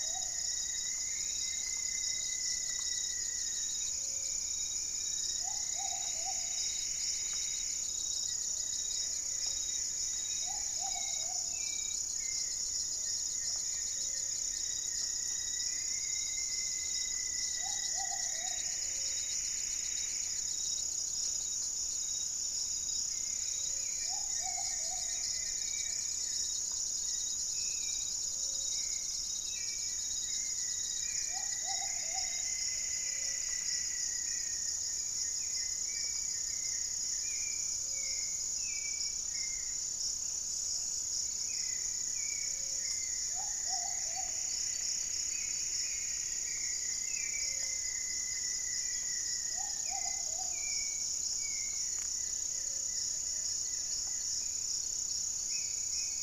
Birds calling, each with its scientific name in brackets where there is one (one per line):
Hauxwell's Thrush (Turdus hauxwelli)
unidentified bird
Goeldi's Antbird (Akletos goeldii)
Plumbeous Antbird (Myrmelastes hyperythrus)
Plumbeous Pigeon (Patagioenas plumbea)
Black-faced Antthrush (Formicarius analis)
Gray-fronted Dove (Leptotila rufaxilla)
Rufous-fronted Antthrush (Formicarius rufifrons)